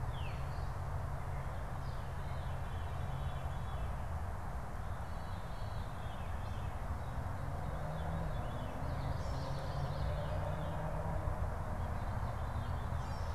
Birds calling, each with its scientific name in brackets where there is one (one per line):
Common Yellowthroat (Geothlypis trichas)
Veery (Catharus fuscescens)